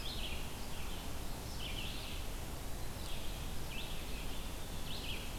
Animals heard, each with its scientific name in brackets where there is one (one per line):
Eastern Wood-Pewee (Contopus virens)
Red-eyed Vireo (Vireo olivaceus)